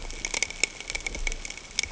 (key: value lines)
label: ambient
recorder: HydroMoth